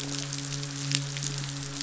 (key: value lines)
label: biophony
recorder: SoundTrap 500

label: biophony, midshipman
recorder: SoundTrap 500